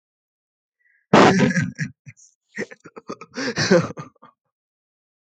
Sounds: Laughter